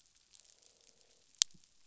{"label": "biophony, croak", "recorder": "SoundTrap 500"}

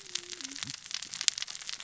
{"label": "biophony, cascading saw", "recorder": "SoundTrap 600 or HydroMoth"}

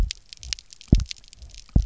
{"label": "biophony, double pulse", "recorder": "SoundTrap 300"}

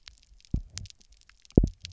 {"label": "biophony, double pulse", "recorder": "SoundTrap 300"}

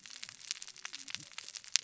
{"label": "biophony, cascading saw", "recorder": "SoundTrap 600 or HydroMoth"}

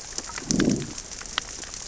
{"label": "biophony, growl", "recorder": "SoundTrap 600 or HydroMoth"}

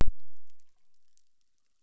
{"label": "biophony, chorus", "recorder": "SoundTrap 600"}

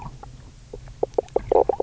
{"label": "biophony, knock croak", "recorder": "SoundTrap 300"}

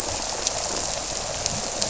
{"label": "biophony", "recorder": "SoundTrap 300"}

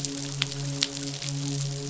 {"label": "biophony, midshipman", "recorder": "SoundTrap 500"}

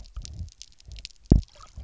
{"label": "biophony, double pulse", "recorder": "SoundTrap 300"}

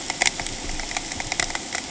{"label": "ambient", "recorder": "HydroMoth"}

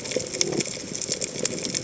{"label": "biophony", "recorder": "HydroMoth"}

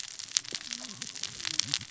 {"label": "biophony, cascading saw", "recorder": "SoundTrap 600 or HydroMoth"}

